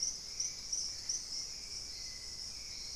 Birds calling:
Hauxwell's Thrush (Turdus hauxwelli)

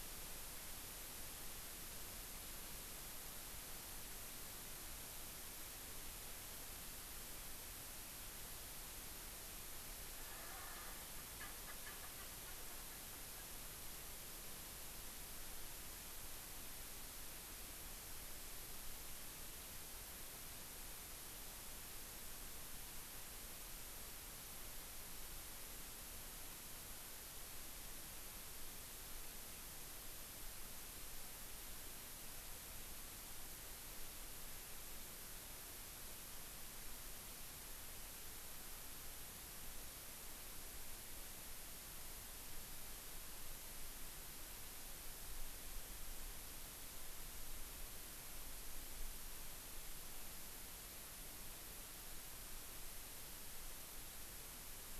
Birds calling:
Erckel's Francolin (Pternistis erckelii)

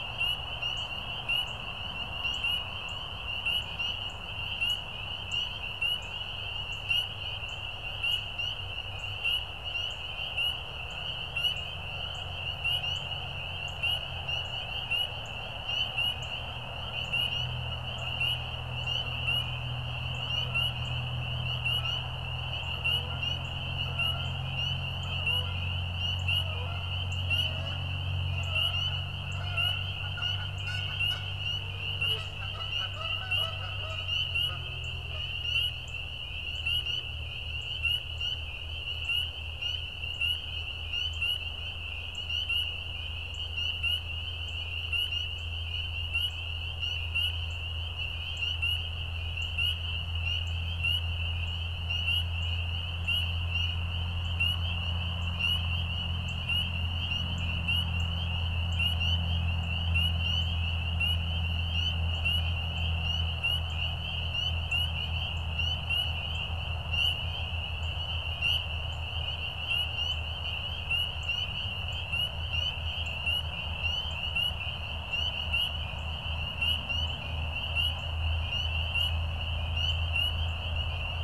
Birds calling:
Canada Goose (Branta canadensis)
Northern Cardinal (Cardinalis cardinalis)

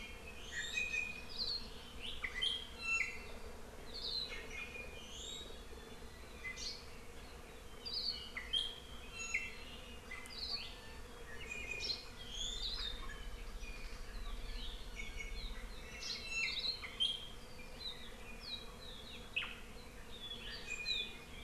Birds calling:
Iiwi (Drepanis coccinea)
Hawaii Akepa (Loxops coccineus)

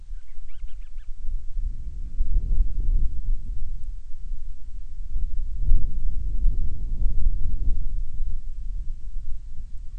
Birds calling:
Band-rumped Storm-Petrel (Hydrobates castro)

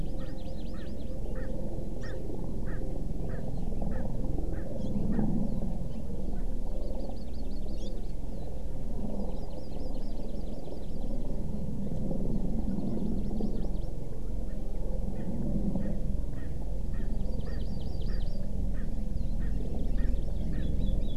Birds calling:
Hawaii Amakihi (Chlorodrepanis virens)
Erckel's Francolin (Pternistis erckelii)

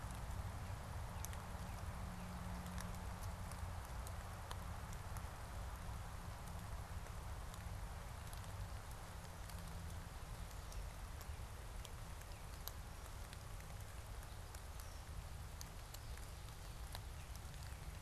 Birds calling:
Northern Cardinal (Cardinalis cardinalis)

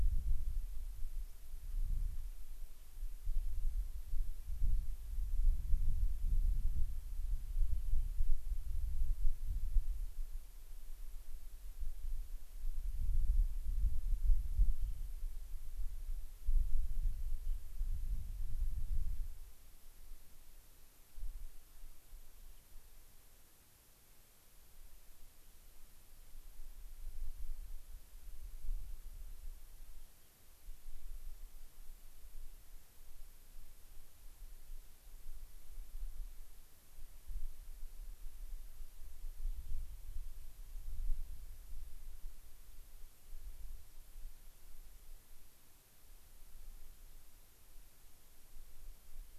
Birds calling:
Gray-crowned Rosy-Finch (Leucosticte tephrocotis)
White-crowned Sparrow (Zonotrichia leucophrys)
Rock Wren (Salpinctes obsoletus)

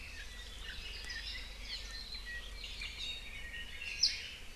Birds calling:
Iiwi (Drepanis coccinea)
Apapane (Himatione sanguinea)

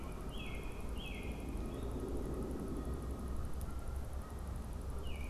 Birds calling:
Canada Goose (Branta canadensis)
American Robin (Turdus migratorius)

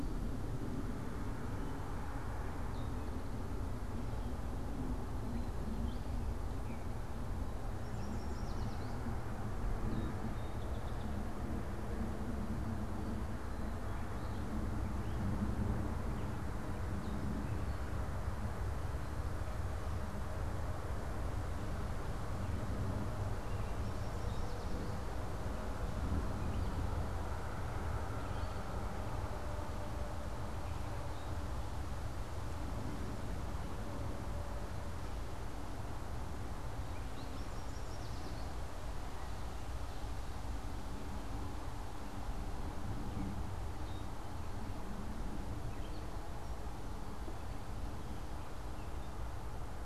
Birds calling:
Gray Catbird (Dumetella carolinensis)
Yellow Warbler (Setophaga petechia)
Song Sparrow (Melospiza melodia)

